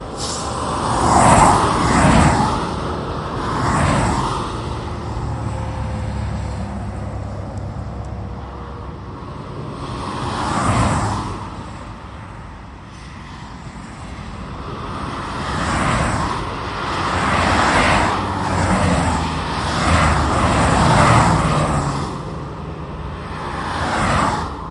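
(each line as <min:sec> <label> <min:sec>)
0:00.0 Cars passing irregularly at high speed from a close distance, with noticeable approach and fade-out sounds. 0:24.7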